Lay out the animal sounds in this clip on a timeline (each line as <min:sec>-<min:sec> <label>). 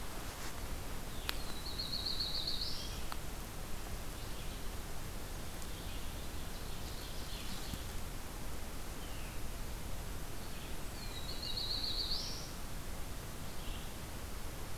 0:00.0-0:14.0 Red-eyed Vireo (Vireo olivaceus)
0:01.3-0:03.1 Black-throated Blue Warbler (Setophaga caerulescens)
0:06.2-0:07.9 Ovenbird (Seiurus aurocapilla)
0:10.8-0:12.5 Black-throated Blue Warbler (Setophaga caerulescens)